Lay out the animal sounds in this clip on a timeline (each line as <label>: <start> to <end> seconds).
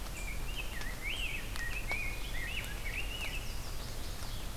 Rose-breasted Grosbeak (Pheucticus ludovicianus): 0.0 to 3.6 seconds
Chestnut-sided Warbler (Setophaga pensylvanica): 2.9 to 4.6 seconds